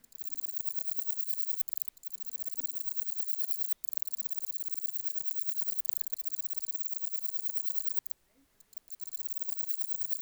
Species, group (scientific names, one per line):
Parnassiana tymphrestos
Orthoptera